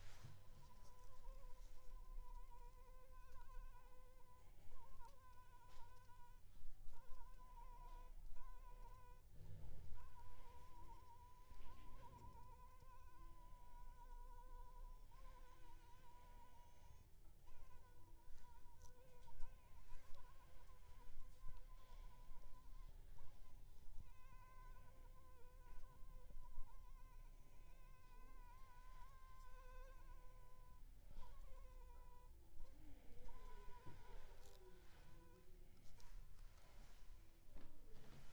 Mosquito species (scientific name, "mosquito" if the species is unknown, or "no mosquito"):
Anopheles funestus s.s.